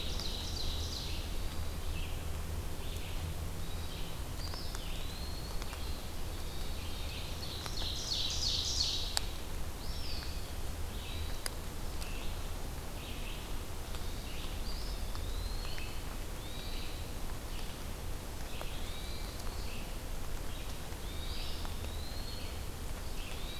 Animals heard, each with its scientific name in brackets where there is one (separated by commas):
Ovenbird (Seiurus aurocapilla), Eastern Wood-Pewee (Contopus virens), Hermit Thrush (Catharus guttatus), Red-eyed Vireo (Vireo olivaceus)